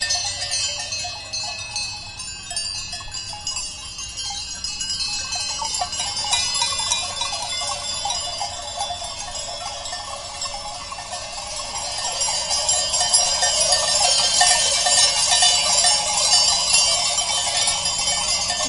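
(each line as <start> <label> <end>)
0.0 A continuous tapping sound with varying loudness. 18.7
0.0 Bells jingling continuously with increasing loudness. 18.7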